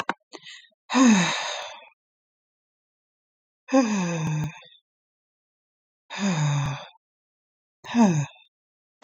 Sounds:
Sigh